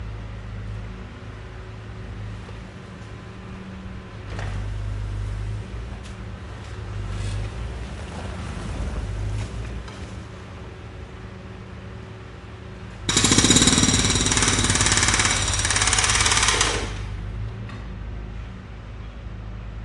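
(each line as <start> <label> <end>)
0.0 Construction machines are operating in the background. 13.0
13.1 A jackhammer is operating. 17.0
17.0 Construction machines are operating in the background. 19.8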